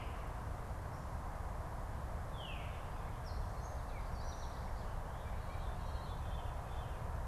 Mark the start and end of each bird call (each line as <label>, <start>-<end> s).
Veery (Catharus fuscescens), 0.0-2.9 s
Gray Catbird (Dumetella carolinensis), 3.0-4.7 s
Veery (Catharus fuscescens), 5.1-7.2 s